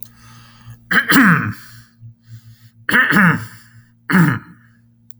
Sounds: Throat clearing